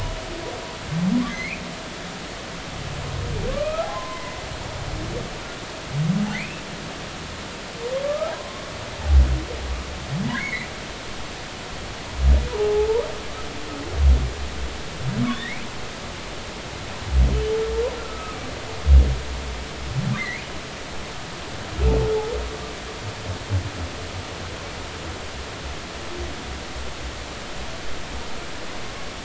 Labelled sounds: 1.3	1.6	humpback whale, 1.9 to 2.6 kHz
3.5	4.4	humpback whale, 0.93 to 2.6 kHz
6.3	6.6	humpback whale, 1.8 to 2.7 kHz
8.0	8.6	humpback whale, 0.96 to 1.4 kHz
10.2	10.7	humpback whale, 1.4 to 2.4 kHz
12.5	13.0	humpback whale, 0.80 to 1.0 kHz
15.3	15.6	humpback whale, 1.7 to 3.9 kHz
18.0	18.4	humpback whale, 1.2 to 1.4 kHz
20.1	20.4	humpback whale, 1.5 to 2.2 kHz

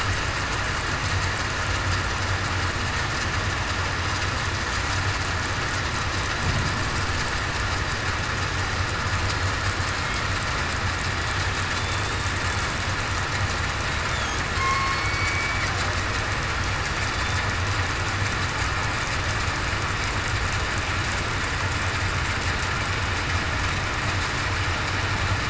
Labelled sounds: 14.5	15.0	killer whale, southern resident, 1.0 to 1.1 kHz
17.0	17.4	killer whale, southern resident, 3.5 to 3.6 kHz

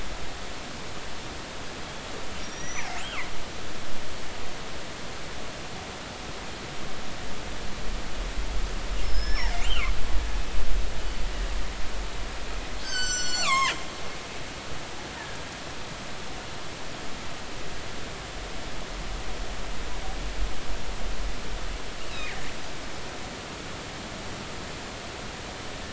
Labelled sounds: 2.4	3.3	killer whale, northern resident, G clan, GG subclan, call N29, 1.8 to 6.0 kHz
9.0	9.9	killer whale, northern resident, G clan, GG subclan, call N29, 1.5 to 5.6 kHz
12.8	13.8	killer whale, northern resident, G clan, GG subclan, call N23ii, 0.90 to 7.9 kHz
22.1	22.5	killer whale, northern resident, 1.7 to 2.9 kHz

